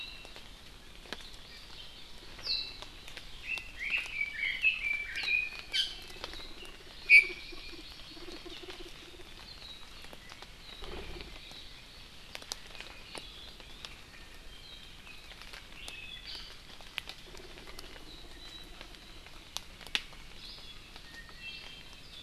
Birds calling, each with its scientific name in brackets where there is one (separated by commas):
Hawaii Amakihi (Chlorodrepanis virens), Red-billed Leiothrix (Leiothrix lutea), Iiwi (Drepanis coccinea), Apapane (Himatione sanguinea)